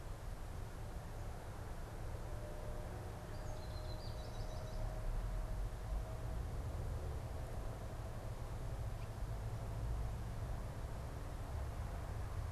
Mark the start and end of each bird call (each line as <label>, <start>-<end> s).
American Goldfinch (Spinus tristis), 2.9-5.1 s